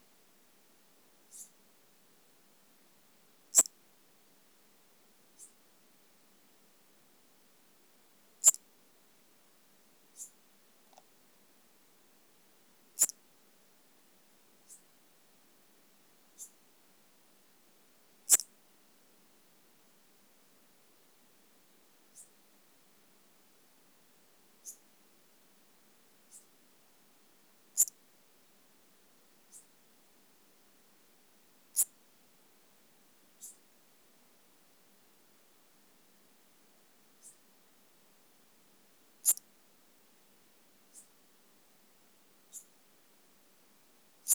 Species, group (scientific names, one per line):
Psorodonotus macedonicus
Orthoptera